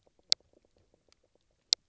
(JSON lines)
{"label": "biophony, knock croak", "recorder": "SoundTrap 300"}